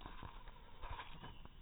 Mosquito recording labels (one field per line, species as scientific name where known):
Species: mosquito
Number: one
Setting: cup